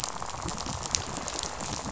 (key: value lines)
label: biophony, rattle
recorder: SoundTrap 500